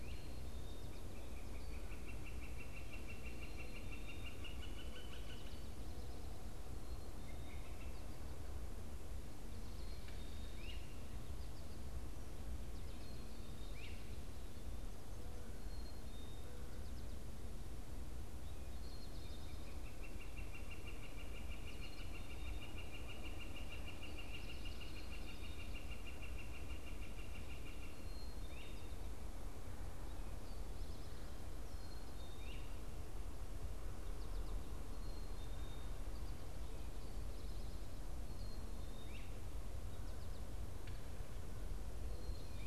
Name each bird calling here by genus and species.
Poecile atricapillus, Colaptes auratus, unidentified bird, Myiarchus crinitus